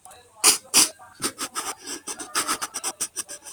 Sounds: Sniff